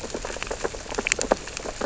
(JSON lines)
{"label": "biophony, sea urchins (Echinidae)", "recorder": "SoundTrap 600 or HydroMoth"}